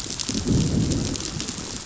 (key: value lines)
label: biophony, growl
recorder: SoundTrap 500